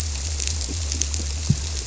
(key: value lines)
label: biophony
recorder: SoundTrap 300